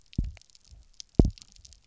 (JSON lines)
{"label": "biophony, double pulse", "recorder": "SoundTrap 300"}